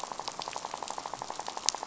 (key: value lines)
label: biophony, rattle
recorder: SoundTrap 500